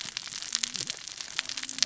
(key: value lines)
label: biophony, cascading saw
recorder: SoundTrap 600 or HydroMoth